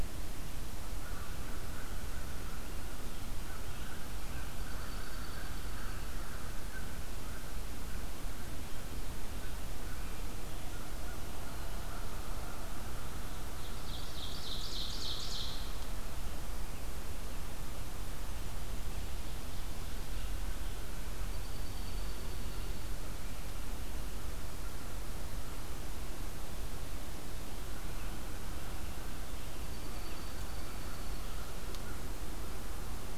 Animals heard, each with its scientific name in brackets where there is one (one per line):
Dark-eyed Junco (Junco hyemalis)
Ovenbird (Seiurus aurocapilla)
American Crow (Corvus brachyrhynchos)